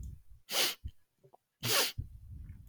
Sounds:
Sniff